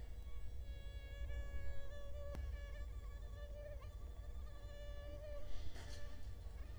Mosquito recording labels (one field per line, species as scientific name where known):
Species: Culex quinquefasciatus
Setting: cup